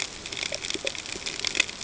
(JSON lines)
{"label": "ambient", "recorder": "HydroMoth"}